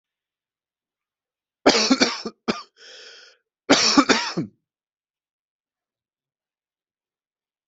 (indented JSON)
{
  "expert_labels": [
    {
      "quality": "good",
      "cough_type": "dry",
      "dyspnea": false,
      "wheezing": false,
      "stridor": false,
      "choking": false,
      "congestion": false,
      "nothing": true,
      "diagnosis": "COVID-19",
      "severity": "mild"
    }
  ],
  "age": 36,
  "gender": "male",
  "respiratory_condition": true,
  "fever_muscle_pain": false,
  "status": "symptomatic"
}